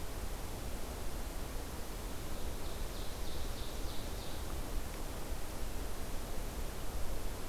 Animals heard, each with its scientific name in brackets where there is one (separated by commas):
Ovenbird (Seiurus aurocapilla)